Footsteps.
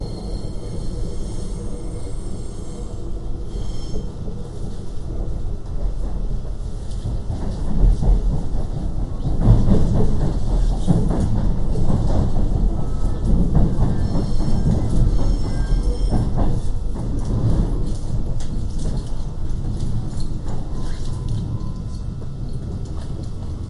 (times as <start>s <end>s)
16.9s 23.6s